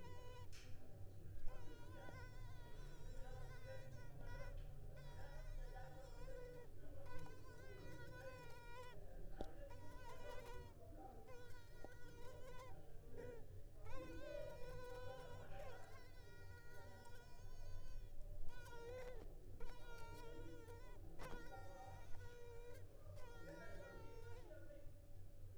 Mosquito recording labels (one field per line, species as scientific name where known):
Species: Culex pipiens complex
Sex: female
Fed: unfed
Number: one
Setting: cup